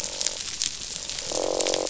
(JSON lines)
{"label": "biophony, croak", "recorder": "SoundTrap 500"}